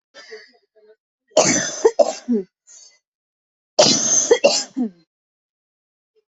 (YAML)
expert_labels:
- quality: ok
  cough_type: dry
  dyspnea: false
  wheezing: false
  stridor: false
  choking: false
  congestion: false
  nothing: true
  diagnosis: healthy cough
  severity: pseudocough/healthy cough
age: 33
gender: other
respiratory_condition: true
fever_muscle_pain: true
status: COVID-19